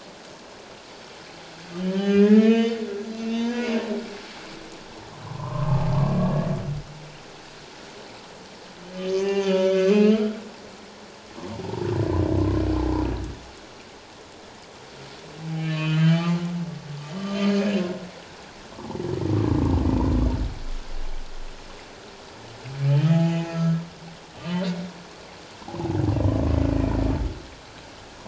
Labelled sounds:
1.8	2.9	humpback whale, 1.1 to 4.7 kHz
3.1	3.8	humpback whale, 0.88 to 4.8 kHz
5.2	5.8	humpback whale, 0.88 to 1.3 kHz
9.1	10.4	humpback whale, 0.78 to 6.3 kHz
15.6	16.4	humpback whale, 1.0 to 4.6 kHz
17.1	17.5	humpback whale, 3.0 to 3.2 kHz
18.7	19.0	humpback whale, 0.78 to 1.2 kHz
22.9	23.8	humpback whale, 0.78 to 3.2 kHz

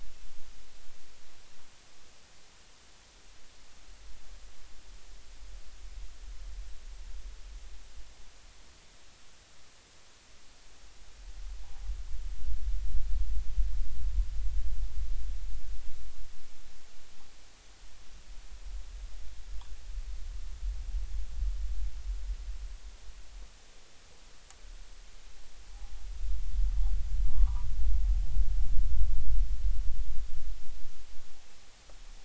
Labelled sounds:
27.3	27.7	noise likely from the mooring, 0.80 to 1.3 kHz

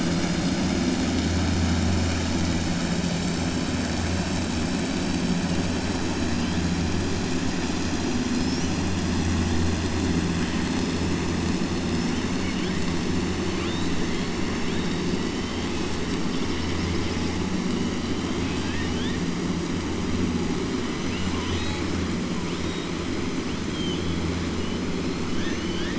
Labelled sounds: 13.5	13.9	killer whale, 1.4 to 4.5 kHz
14.6	15.0	killer whale, 2.4 to 4.7 kHz
18.3	19.2	killer whale, 0.87 to 4.4 kHz
25.3	25.9	killer whale, 1.6 to 6.2 kHz

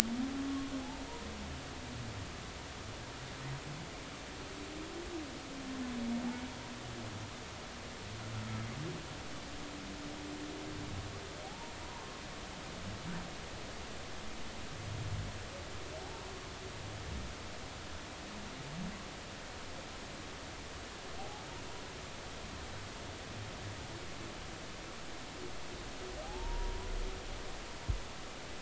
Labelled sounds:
11.4	12.2	humpback whale, 0.80 to 1.1 kHz
16.0	16.3	humpback whale, 0.80 to 0.99 kHz
21.2	21.4	humpback whale, 0.80 to 0.90 kHz
26.2	26.9	humpback whale, 0.80 to 1.0 kHz

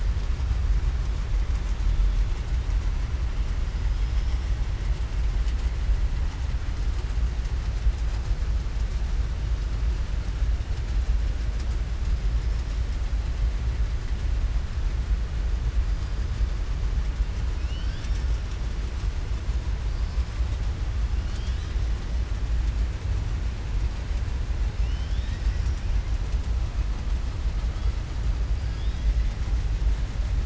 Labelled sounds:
3.9	4.5	killer whale, southern resident, 4.9 to 5.8 kHz

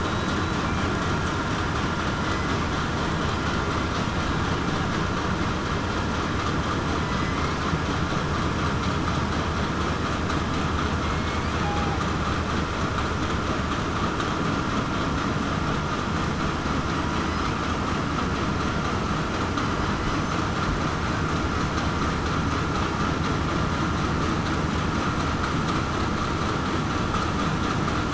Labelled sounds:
0.0	0.4	killer whale, southern resident, 3.8 to 3.9 kHz
7.0	7.4	killer whale, southern resident, 1.9 to 2.1 kHz
11.0	12.0	killer whale, southern resident, 0.75 to 2.4 kHz

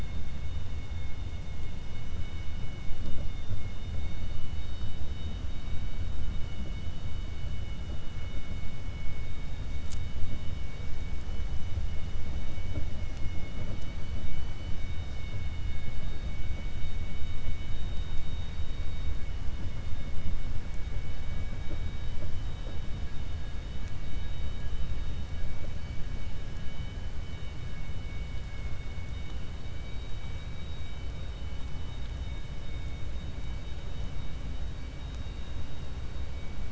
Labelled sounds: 28.4	29.0	vessel noise, 1.4 to 4.5 kHz

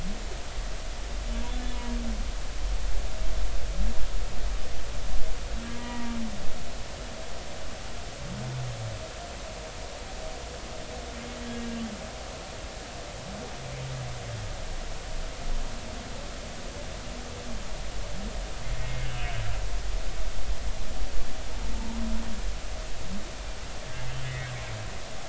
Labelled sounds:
5.7	6.1	humpback whale, 0.90 to 2.0 kHz
18.8	19.3	humpback whale, 2.1 to 3.0 kHz
24.2	24.5	humpback whale, 1.9 to 2.3 kHz

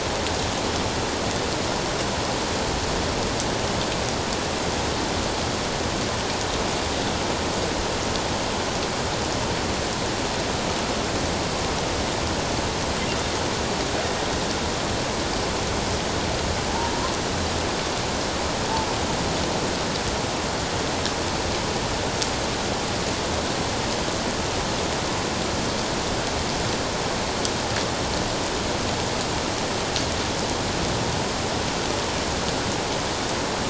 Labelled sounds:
16.7	17.0	killer whale, offshore, 0.78 to 1.0 kHz

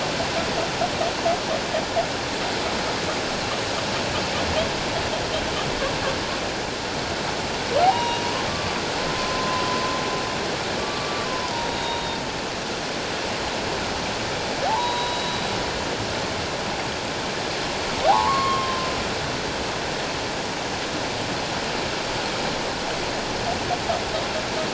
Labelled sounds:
7.8	8.8	humpback whale, 0.78 to 5.8 kHz
9.1	9.8	humpback whale, 0.97 to 1.1 kHz
10.8	12.2	humpback whale, 0.88 to 3.8 kHz
14.7	15.4	humpback whale, 0.78 to 3.9 kHz
18.1	18.9	humpback whale, 0.78 to 3.3 kHz

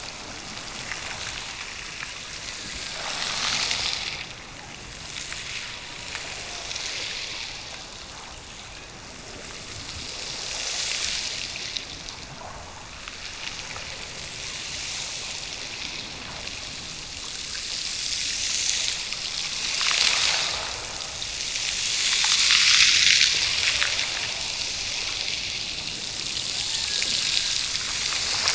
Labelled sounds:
26.6	27.8	killer whale, Bigg's (transient), Gulf of Alaska transient, 0.55 to 1.9 kHz

